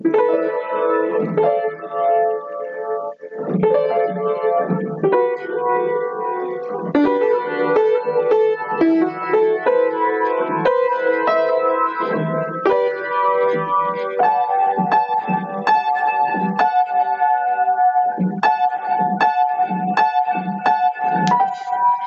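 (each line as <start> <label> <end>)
0.0 A piano plays washed-out, warped, reverberated, and screechy notes that gradually fade away with an echo. 7.0
6.9 A piano producing washed-out, warped, reverberated, and screechy sounds with a strong echo. 22.1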